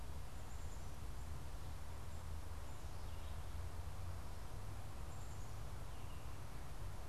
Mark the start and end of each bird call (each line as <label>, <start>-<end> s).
Black-capped Chickadee (Poecile atricapillus), 0.0-7.0 s